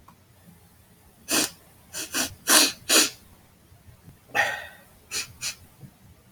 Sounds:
Sniff